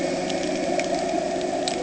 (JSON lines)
{"label": "anthrophony, boat engine", "recorder": "HydroMoth"}